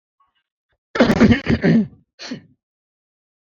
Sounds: Throat clearing